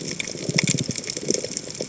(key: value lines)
label: biophony, chatter
recorder: HydroMoth